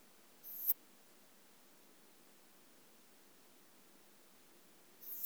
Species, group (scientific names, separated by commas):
Poecilimon pseudornatus, Orthoptera